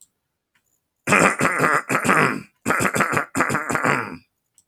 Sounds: Throat clearing